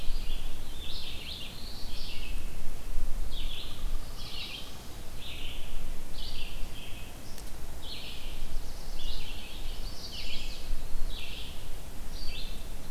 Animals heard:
Pileated Woodpecker (Dryocopus pileatus), Eastern Wood-Pewee (Contopus virens), Black-throated Blue Warbler (Setophaga caerulescens), Chimney Swift (Chaetura pelagica), Red-eyed Vireo (Vireo olivaceus), Yellow-rumped Warbler (Setophaga coronata)

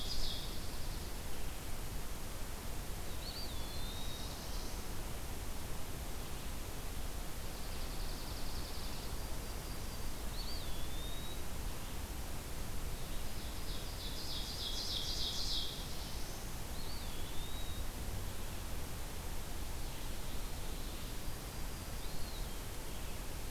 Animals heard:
Red-eyed Vireo (Vireo olivaceus), Black-throated Blue Warbler (Setophaga caerulescens), Eastern Wood-Pewee (Contopus virens), Ovenbird (Seiurus aurocapilla), Yellow-rumped Warbler (Setophaga coronata), Dark-eyed Junco (Junco hyemalis)

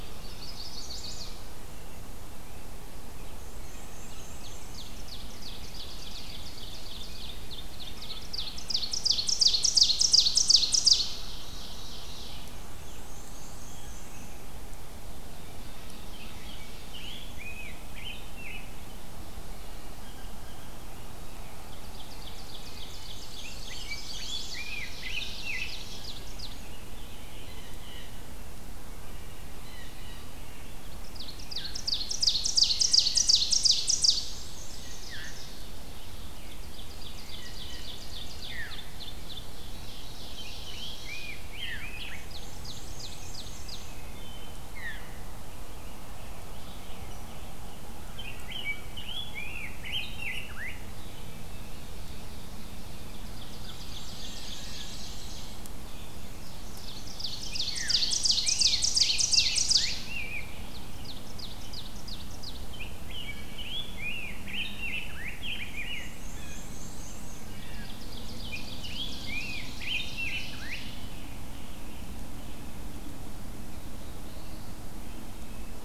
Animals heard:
Chestnut-sided Warbler (Setophaga pensylvanica), Black-throated Blue Warbler (Setophaga caerulescens), Veery (Catharus fuscescens), Rose-breasted Grosbeak (Pheucticus ludovicianus), Blue Jay (Cyanocitta cristata), Ovenbird (Seiurus aurocapilla), Wood Thrush (Hylocichla mustelina), Scarlet Tanager (Piranga olivacea), American Robin (Turdus migratorius), Black-and-white Warbler (Mniotilta varia)

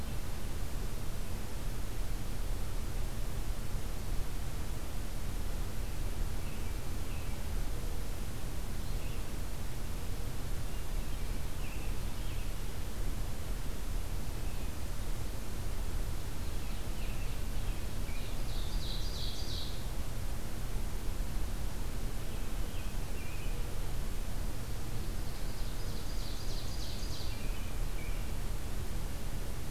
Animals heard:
Ovenbird (Seiurus aurocapilla), American Robin (Turdus migratorius)

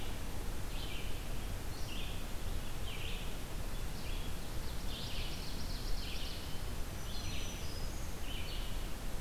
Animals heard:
Ovenbird (Seiurus aurocapilla), Red-eyed Vireo (Vireo olivaceus), Black-throated Green Warbler (Setophaga virens)

